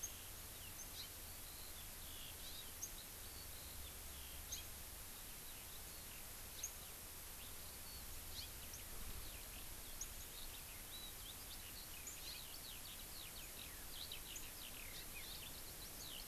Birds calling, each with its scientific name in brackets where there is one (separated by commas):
Hawaii Amakihi (Chlorodrepanis virens), Eurasian Skylark (Alauda arvensis)